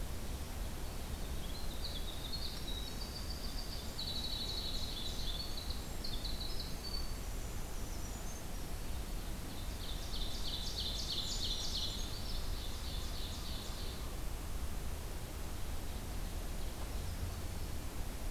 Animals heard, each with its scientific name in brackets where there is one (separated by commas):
Brown Creeper (Certhia americana), Winter Wren (Troglodytes hiemalis), Ovenbird (Seiurus aurocapilla)